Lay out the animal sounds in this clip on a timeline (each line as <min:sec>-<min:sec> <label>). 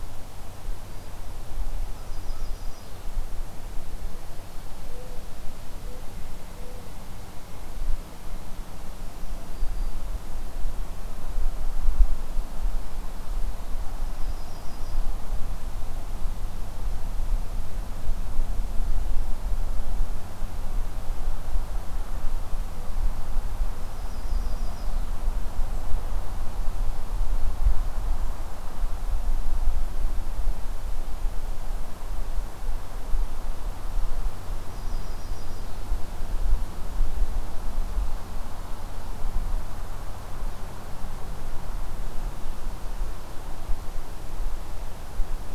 0:01.9-0:03.1 Yellow-rumped Warbler (Setophaga coronata)
0:04.8-0:06.9 Mourning Dove (Zenaida macroura)
0:06.0-0:07.9 Pileated Woodpecker (Dryocopus pileatus)
0:09.4-0:10.0 Black-throated Green Warbler (Setophaga virens)
0:13.9-0:15.2 Yellow-rumped Warbler (Setophaga coronata)
0:23.8-0:25.1 Yellow-rumped Warbler (Setophaga coronata)
0:27.6-0:29.1 Golden-crowned Kinglet (Regulus satrapa)
0:34.6-0:35.9 Yellow-rumped Warbler (Setophaga coronata)